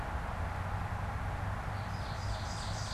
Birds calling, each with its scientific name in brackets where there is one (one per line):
Ovenbird (Seiurus aurocapilla)